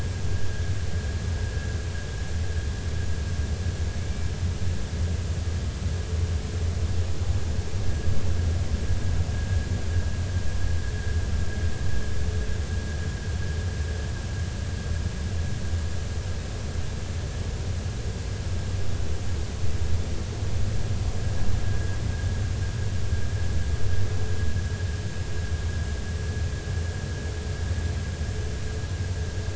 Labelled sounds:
21.6	22.0	vessel noise, 1.6 to 1.7 kHz

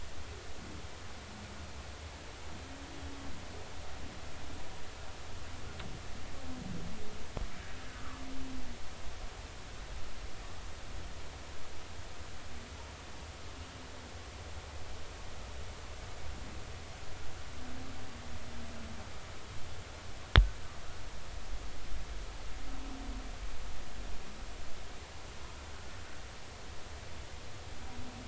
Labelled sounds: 7.9	8.2	humpback whale, 1.0 to 1.4 kHz

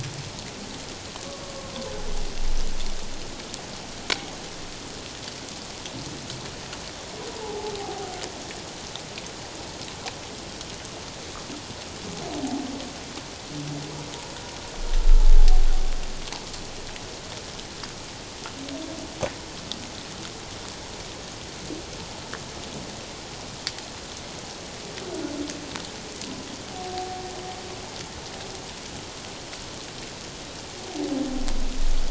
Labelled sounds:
7.4	8.2	humpback whale, 0.78 to 1.0 kHz
26.7	27.2	humpback whale, 0.78 to 0.81 kHz

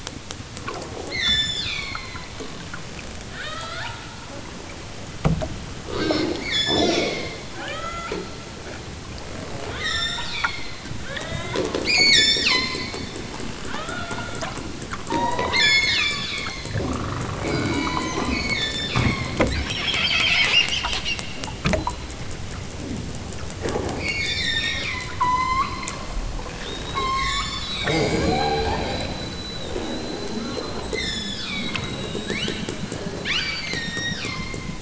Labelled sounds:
1.1	2.3	killer whale, southern Alaska resident, 0.69 to 8.0 kHz
3.3	4.0	killer whale, southern Alaska resident, 0.28 to 5.6 kHz
6.4	8.2	killer whale, southern Alaska resident, 0.28 to 8.0 kHz
9.7	10.7	killer whale, southern Alaska resident, 0.46 to 8.0 kHz
11.0	12.9	killer whale, southern Alaska resident, 0.28 to 8.0 kHz
13.7	14.6	killer whale, southern Alaska resident, 0.41 to 4.5 kHz
15.0	16.7	killer whale, southern Alaska resident, 0.55 to 8.0 kHz
17.4	19.4	killer whale, southern Alaska resident, 0.69 to 8.0 kHz
23.9	25.8	killer whale, southern Alaska resident, 0.69 to 8.0 kHz
26.8	28.8	killer whale, southern Alaska resident, 0.60 to 8.0 kHz
30.8	31.9	killer whale, southern Alaska resident, 0.83 to 8.0 kHz
32.2	32.6	killer whale, southern Alaska resident, 1.3 to 6.7 kHz
33.2	34.7	killer whale, southern Alaska resident, 0.73 to 8.0 kHz

